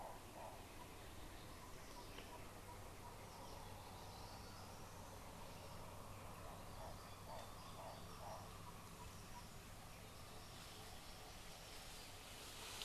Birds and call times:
Hartlaub's Turaco (Tauraco hartlaubi): 7.2s

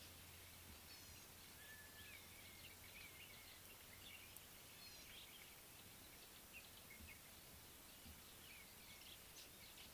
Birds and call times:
Gray-backed Camaroptera (Camaroptera brevicaudata): 1.2s

